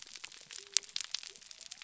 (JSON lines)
{"label": "biophony", "recorder": "SoundTrap 300"}